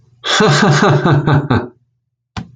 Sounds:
Laughter